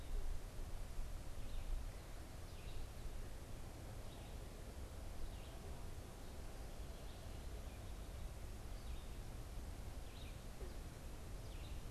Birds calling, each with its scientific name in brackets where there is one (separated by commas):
Red-eyed Vireo (Vireo olivaceus)